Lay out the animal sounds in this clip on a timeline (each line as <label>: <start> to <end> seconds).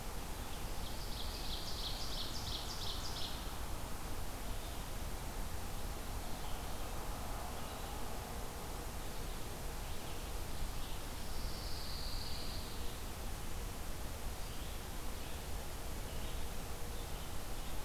Red-eyed Vireo (Vireo olivaceus): 0.0 to 17.8 seconds
Ovenbird (Seiurus aurocapilla): 0.4 to 3.5 seconds
Pine Warbler (Setophaga pinus): 11.1 to 12.9 seconds